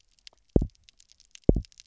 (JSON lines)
{"label": "biophony, double pulse", "recorder": "SoundTrap 300"}